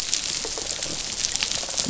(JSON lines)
{"label": "biophony, rattle response", "recorder": "SoundTrap 500"}